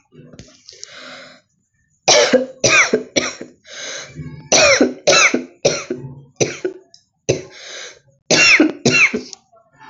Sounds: Cough